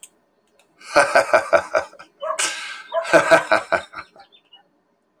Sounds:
Laughter